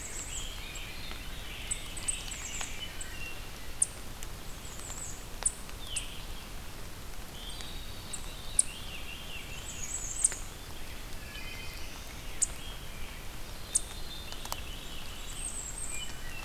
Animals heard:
Black-throated Blue Warbler (Setophaga caerulescens), Eastern Chipmunk (Tamias striatus), Wood Thrush (Hylocichla mustelina), Bay-breasted Warbler (Setophaga castanea), Rose-breasted Grosbeak (Pheucticus ludovicianus), Veery (Catharus fuscescens)

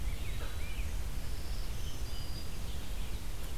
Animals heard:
Red-eyed Vireo (Vireo olivaceus), Eastern Wood-Pewee (Contopus virens), Rose-breasted Grosbeak (Pheucticus ludovicianus), Black-throated Green Warbler (Setophaga virens)

